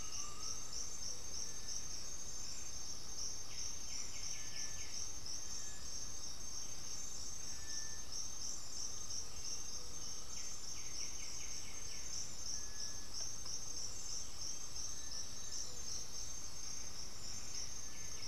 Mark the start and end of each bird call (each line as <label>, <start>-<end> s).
Black-spotted Bare-eye (Phlegopsis nigromaculata), 0.0-0.7 s
Undulated Tinamou (Crypturellus undulatus), 0.0-0.7 s
White-winged Becard (Pachyramphus polychopterus), 0.0-5.3 s
Cinereous Tinamou (Crypturellus cinereus), 0.0-18.3 s
White-winged Becard (Pachyramphus polychopterus), 10.1-12.3 s
Black-throated Antbird (Myrmophylax atrothorax), 14.8-16.3 s
White-winged Becard (Pachyramphus polychopterus), 17.5-18.3 s